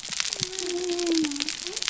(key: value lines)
label: biophony
recorder: SoundTrap 300